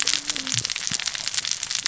{"label": "biophony, cascading saw", "recorder": "SoundTrap 600 or HydroMoth"}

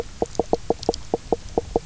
{"label": "biophony, knock croak", "recorder": "SoundTrap 300"}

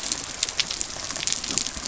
{"label": "biophony", "recorder": "SoundTrap 300"}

